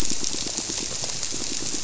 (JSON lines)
{"label": "biophony, squirrelfish (Holocentrus)", "recorder": "SoundTrap 300"}